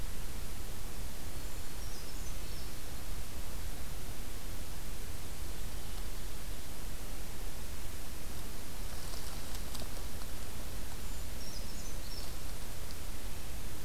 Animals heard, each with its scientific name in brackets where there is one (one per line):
Brown Creeper (Certhia americana)